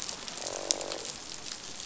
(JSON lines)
{"label": "biophony, croak", "recorder": "SoundTrap 500"}